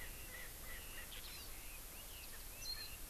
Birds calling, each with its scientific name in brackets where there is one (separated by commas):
Eurasian Skylark (Alauda arvensis), Erckel's Francolin (Pternistis erckelii), Hawaii Amakihi (Chlorodrepanis virens), Warbling White-eye (Zosterops japonicus), Red-billed Leiothrix (Leiothrix lutea)